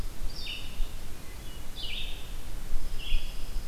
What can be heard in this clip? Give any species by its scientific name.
Vireo olivaceus, Setophaga pinus